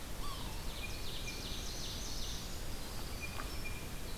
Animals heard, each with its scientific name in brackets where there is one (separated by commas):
Winter Wren (Troglodytes hiemalis), Yellow-bellied Sapsucker (Sphyrapicus varius), Ovenbird (Seiurus aurocapilla), Blue Jay (Cyanocitta cristata)